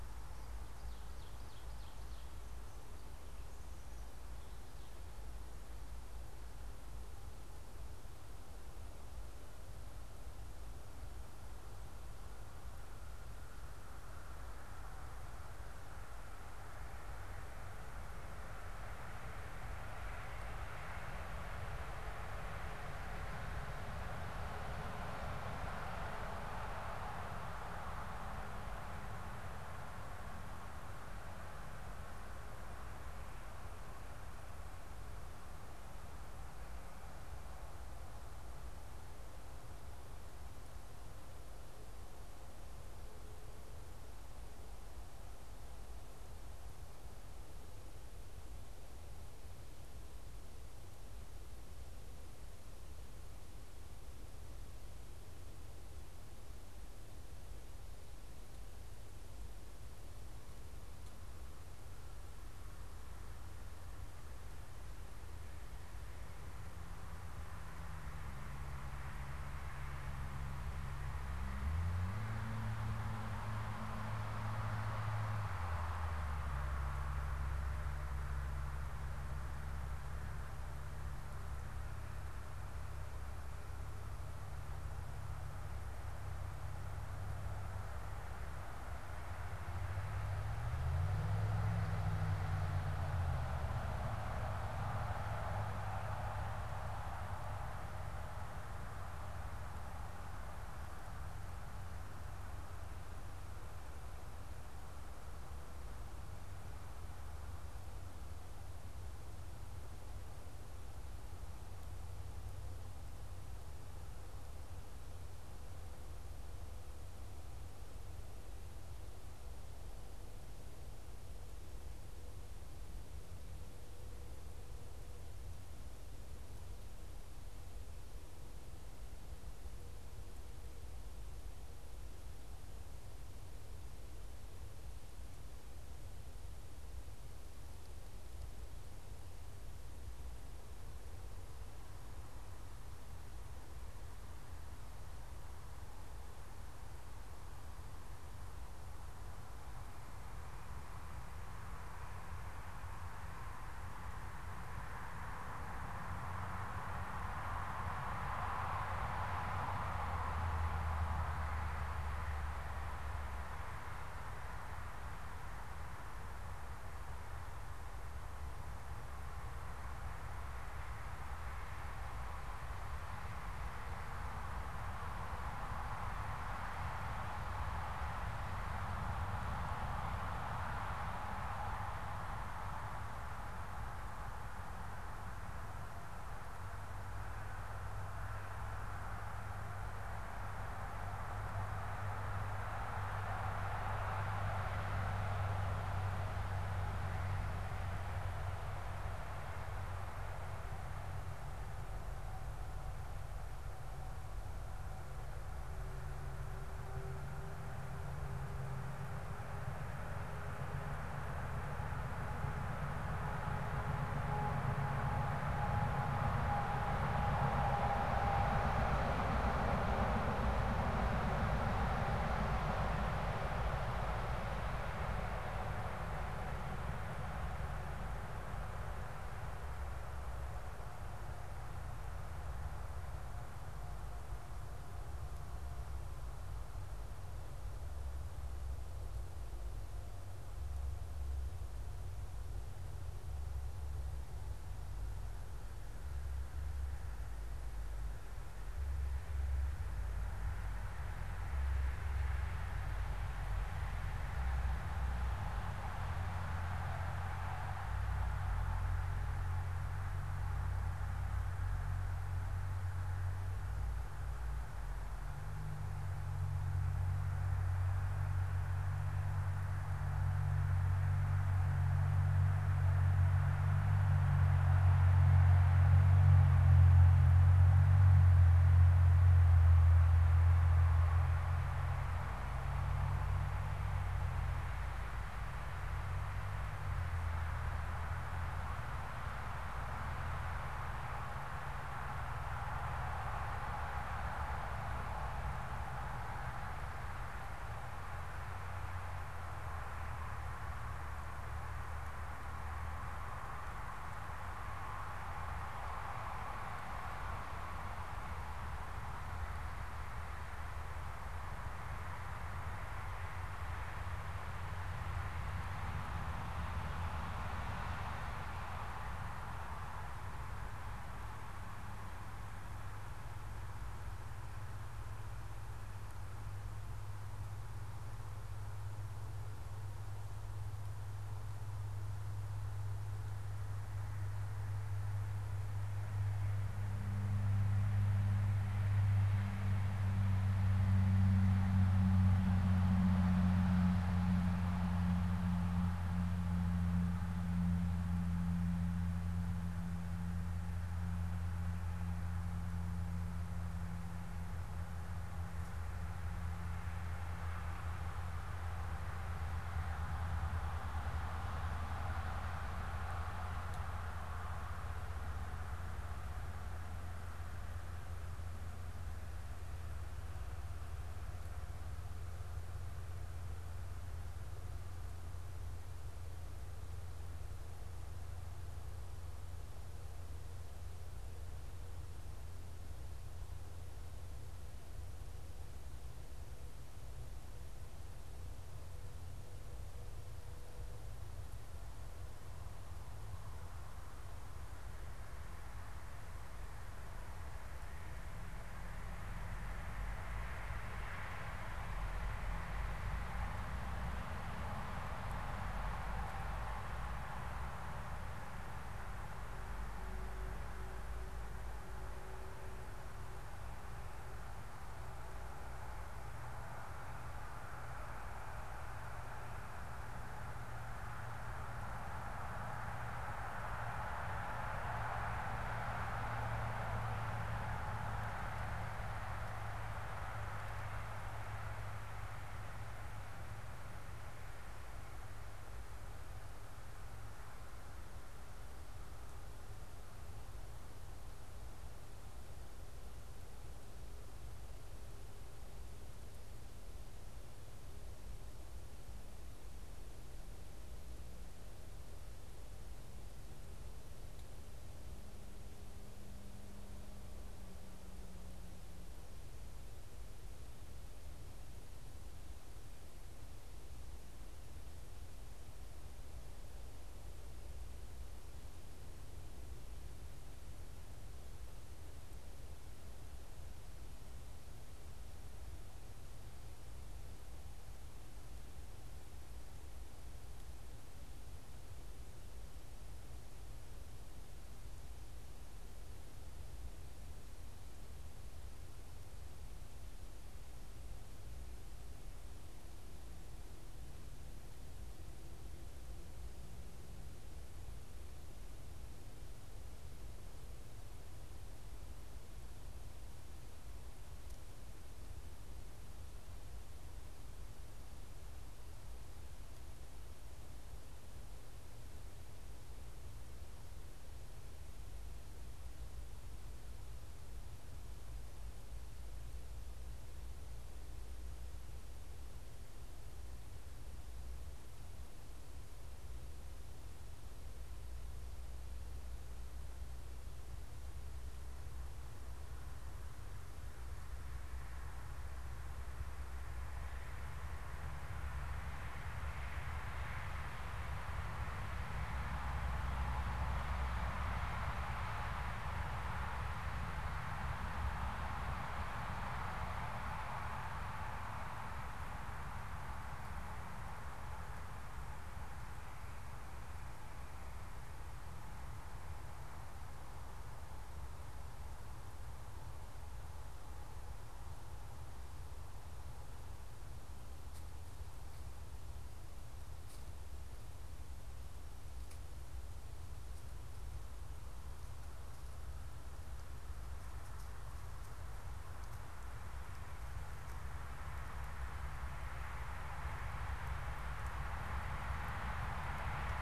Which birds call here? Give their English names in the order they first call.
Ovenbird